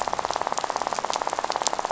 {"label": "biophony, rattle", "recorder": "SoundTrap 500"}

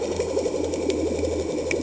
{"label": "anthrophony, boat engine", "recorder": "HydroMoth"}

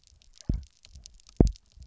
{"label": "biophony, double pulse", "recorder": "SoundTrap 300"}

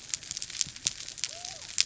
{"label": "biophony", "recorder": "SoundTrap 300"}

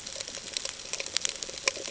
{"label": "ambient", "recorder": "HydroMoth"}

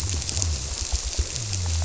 {"label": "biophony", "recorder": "SoundTrap 300"}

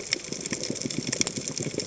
{"label": "biophony, chatter", "recorder": "HydroMoth"}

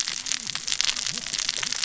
{"label": "biophony, cascading saw", "recorder": "SoundTrap 600 or HydroMoth"}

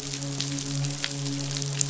{"label": "biophony, midshipman", "recorder": "SoundTrap 500"}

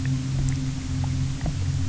{"label": "anthrophony, boat engine", "recorder": "SoundTrap 300"}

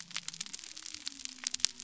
{"label": "biophony", "recorder": "SoundTrap 300"}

